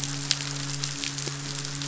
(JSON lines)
{"label": "biophony, midshipman", "recorder": "SoundTrap 500"}